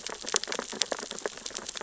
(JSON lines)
{"label": "biophony, sea urchins (Echinidae)", "recorder": "SoundTrap 600 or HydroMoth"}